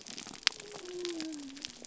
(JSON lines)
{"label": "biophony", "recorder": "SoundTrap 300"}